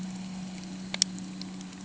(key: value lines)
label: anthrophony, boat engine
recorder: HydroMoth